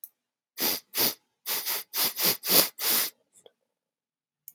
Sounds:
Sniff